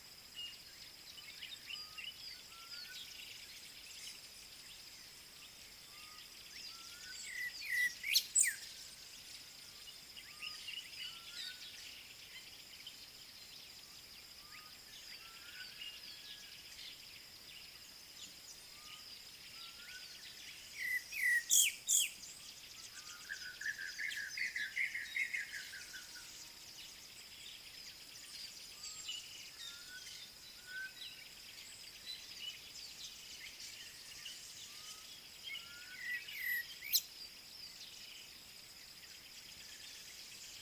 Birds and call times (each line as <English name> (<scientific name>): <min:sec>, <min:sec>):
Black-backed Puffback (Dryoscopus cubla): 0:07.4
African Bare-eyed Thrush (Turdus tephronotus): 0:20.9, 0:36.4
Black Cuckoo (Cuculus clamosus): 0:24.5